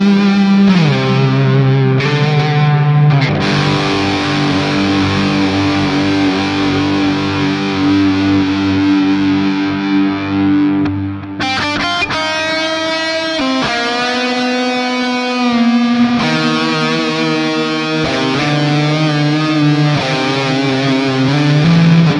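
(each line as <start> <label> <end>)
0.1 A single electric guitar rings out crisply with vibrant, resonant, irregular tones. 3.4
3.4 An electric guitar plays a single crisp, sustained note. 12.0
12.0 Multiple electric guitar notes ring out crisply in a frequent rhythmic pattern. 14.4
14.4 A single electric guitar rings out crisply with vibrant, resonant, irregular tones. 22.1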